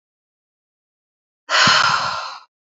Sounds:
Sigh